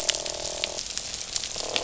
{"label": "biophony, croak", "recorder": "SoundTrap 500"}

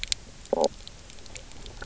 {"label": "biophony, knock croak", "recorder": "SoundTrap 300"}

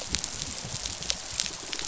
{"label": "biophony, rattle response", "recorder": "SoundTrap 500"}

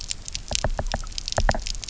{"label": "biophony, knock", "recorder": "SoundTrap 300"}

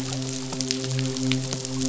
{"label": "biophony, midshipman", "recorder": "SoundTrap 500"}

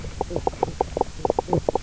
{"label": "biophony, knock croak", "recorder": "SoundTrap 300"}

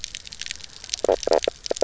{"label": "biophony, knock croak", "recorder": "SoundTrap 300"}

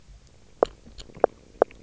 {"label": "biophony, knock croak", "recorder": "SoundTrap 300"}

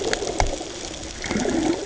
{"label": "ambient", "recorder": "HydroMoth"}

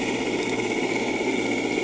{"label": "anthrophony, boat engine", "recorder": "HydroMoth"}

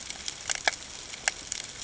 {"label": "ambient", "recorder": "HydroMoth"}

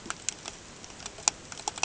{"label": "ambient", "recorder": "HydroMoth"}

